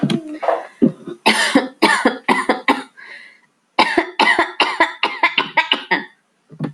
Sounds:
Cough